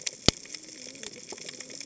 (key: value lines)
label: biophony, cascading saw
recorder: HydroMoth